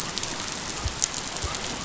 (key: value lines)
label: biophony
recorder: SoundTrap 500